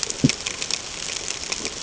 {"label": "ambient", "recorder": "HydroMoth"}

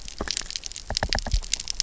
{"label": "biophony, knock", "recorder": "SoundTrap 300"}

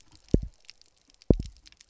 {"label": "biophony, double pulse", "recorder": "SoundTrap 300"}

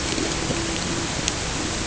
{"label": "ambient", "recorder": "HydroMoth"}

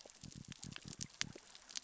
{"label": "biophony", "recorder": "SoundTrap 600 or HydroMoth"}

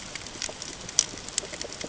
{"label": "ambient", "recorder": "HydroMoth"}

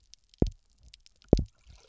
{"label": "biophony, double pulse", "recorder": "SoundTrap 300"}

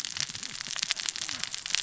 {"label": "biophony, cascading saw", "recorder": "SoundTrap 600 or HydroMoth"}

